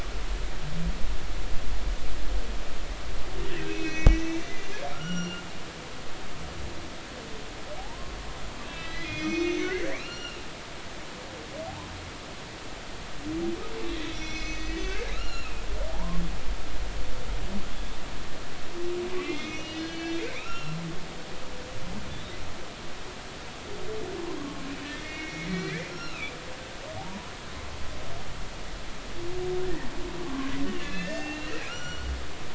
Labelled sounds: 3.6	4.5	humpback whale, 1.9 to 6.3 kHz
4.9	5.4	humpback whale, 1.2 to 7.2 kHz
7.8	10.4	humpback whale, 0.80 to 6.0 kHz
14.0	15.6	humpback whale, 1.2 to 6.2 kHz
15.9	16.2	humpback whale, 0.80 to 1.2 kHz
19.1	20.8	humpback whale, 1.2 to 6.0 kHz
24.4	26.3	humpback whale, 1.0 to 5.6 kHz
27.0	27.3	humpback whale, 0.80 to 1.1 kHz
30.2	30.5	humpback whale, 0.99 to 1.2 kHz
30.8	32.1	humpback whale, 1.3 to 5.9 kHz

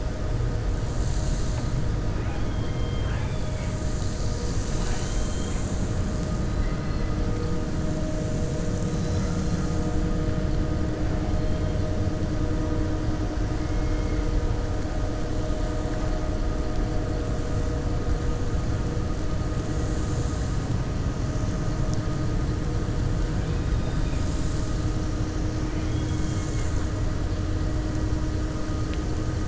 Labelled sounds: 6.5	7.1	killer whale, 1.3 to 2.7 kHz
25.6	26.7	killer whale, 1.6 to 3.4 kHz

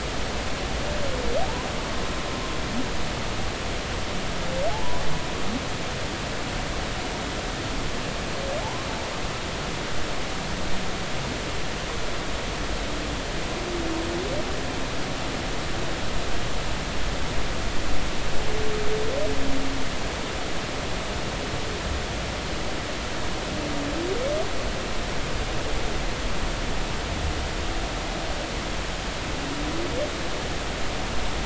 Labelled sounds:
4.7	5.0	humpback whale, 0.80 to 1.0 kHz
8.6	8.9	humpback whale, 0.80 to 1.1 kHz

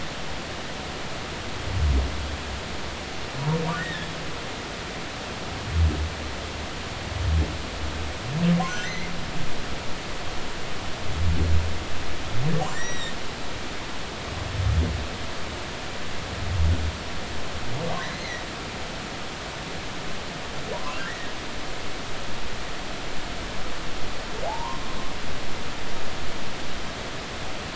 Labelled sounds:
3.8	4.1	humpback whale, 1.7 to 2.0 kHz
8.8	9.1	humpback whale, 1.8 to 2.2 kHz
12.6	13.1	humpback whale, 1.7 to 7.7 kHz
18.0	18.4	humpback whale, 3.8 to 4.3 kHz
20.7	21.3	humpback whale, 0.90 to 2.0 kHz
24.5	24.8	humpback whale, 0.80 to 1.1 kHz

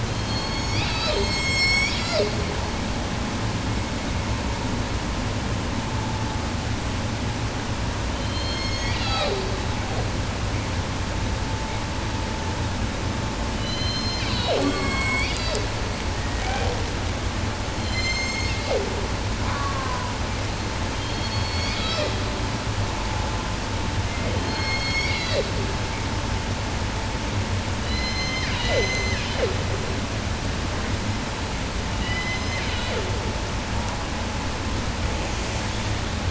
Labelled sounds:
0.0	2.6	killer whale, southern resident, J pod, call S01, 0.19 to 8.0 kHz
8.0	9.6	killer whale, southern resident, J pod, call S01, 0.10 to 8.0 kHz
13.4	15.8	killer whale, 0.17 to 8.0 kHz
16.1	16.9	killer whale, 0.14 to 7.5 kHz
17.7	19.1	killer whale, southern resident, J pod, call S01, 0.10 to 8.0 kHz
19.2	20.3	killer whale, southern resident, 0.10 to 3.0 kHz
20.9	22.3	killer whale, southern resident, J pod, call S01, 0.10 to 7.4 kHz
24.0	25.7	killer whale, southern resident, J pod, call S01, 0.10 to 8.0 kHz
27.7	29.6	killer whale, southern resident, J pod, call S01, 0.10 to 8.0 kHz
32.0	33.2	killer whale, southern resident, J pod, call S01, 0.10 to 8.0 kHz

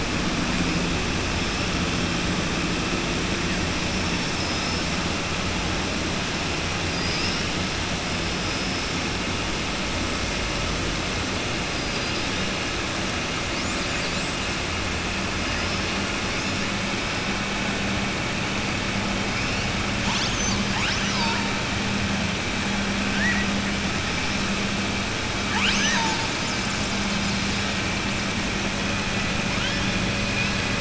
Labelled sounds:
6.8	7.5	killer whale, southern resident, 4.2 to 5.7 kHz
11.7	12.3	killer whale, southern resident, 3.1 to 5.5 kHz

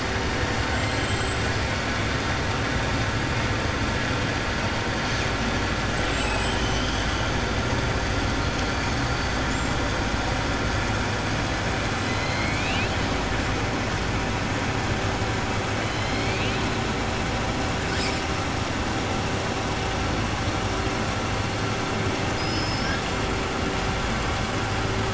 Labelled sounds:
0.7	1.3	killer whale, southern resident, 1.5 to 4.2 kHz
12.1	12.9	killer whale, southern resident, 2.1 to 4.3 kHz
22.2	23.0	killer whale, southern resident, 4.5 to 5.7 kHz

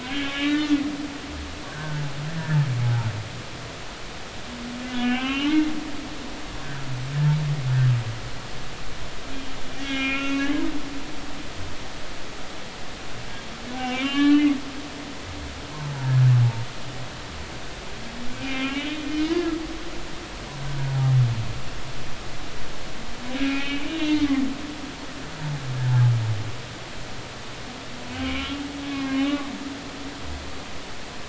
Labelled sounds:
0.0	0.7	humpback whale, 1.1 to 3.5 kHz
1.7	3.1	humpback whale, 0.80 to 1.9 kHz
4.9	6.5	humpback whale, 0.99 to 3.3 kHz
9.8	10.5	humpback whale, 1.3 to 6.4 kHz
13.8	14.5	humpback whale, 0.96 to 4.4 kHz
18.4	19.6	humpback whale, 1.2 to 3.1 kHz
20.7	21.0	humpback whale, 1.4 to 1.6 kHz
23.4	24.4	humpback whale, 1.8 to 3.2 kHz
24.9	25.2	humpback whale, 3.2 to 3.8 kHz
28.2	28.6	humpback whale, 1.0 to 3.1 kHz
28.9	29.5	humpback whale, 1.0 to 2.9 kHz

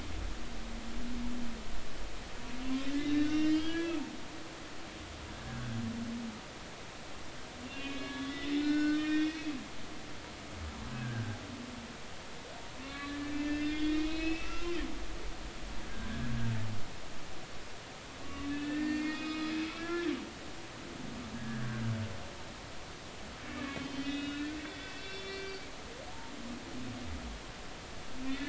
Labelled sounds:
2.9	4.0	humpback whale, 1.6 to 5.1 kHz
5.5	5.8	humpback whale, 1.3 to 1.8 kHz
7.6	9.6	humpback whale, 1.1 to 6.1 kHz
10.9	11.4	humpback whale, 1.5 to 1.7 kHz
12.8	14.7	humpback whale, 1.1 to 5.2 kHz
18.2	20.1	humpback whale, 1.1 to 5.1 kHz
21.3	21.8	humpback whale, 1.5 to 1.8 kHz
23.5	25.6	humpback whale, 1.4 to 5.5 kHz
28.3	28.4	humpback whale, 1.8 to 2.1 kHz

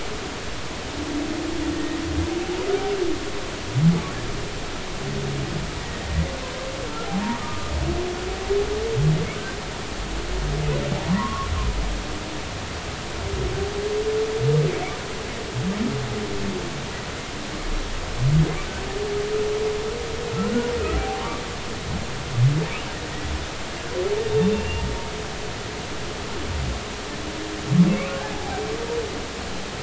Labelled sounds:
1.7	2.0	humpback whale, 1.8 to 1.9 kHz
7.3	7.7	humpback whale, 1.1 to 1.3 kHz
11.1	11.5	humpback whale, 0.93 to 1.2 kHz
20.4	20.7	humpback whale, 1.3 to 1.5 kHz
21.9	22.2	humpback whale, 0.80 to 0.86 kHz
24.5	24.8	humpback whale, 2.7 to 2.8 kHz
27.9	28.7	humpback whale, 0.80 to 2.6 kHz

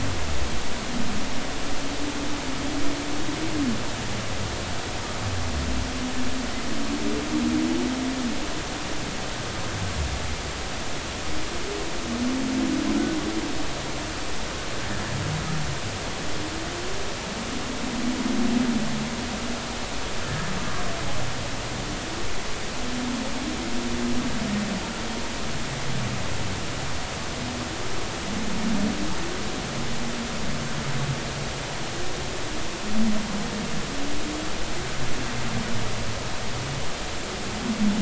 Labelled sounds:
20.2	20.5	humpback whale, 1.6 to 1.8 kHz

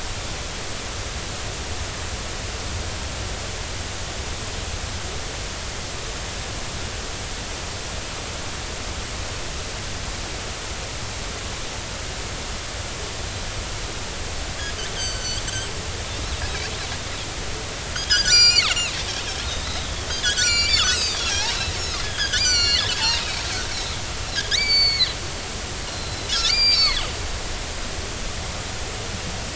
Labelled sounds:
15.0	16.4	Pacific white-sided dolphin, 2.9 to 7.9 kHz
18.0	18.9	Pacific white-sided dolphin, 1.3 to 7.5 kHz
19.6	23.4	Pacific white-sided dolphin, 1.2 to 7.6 kHz
24.4	25.2	Pacific white-sided dolphin, 1.5 to 4.7 kHz
25.8	27.0	Pacific white-sided dolphin, 1.6 to 5.5 kHz

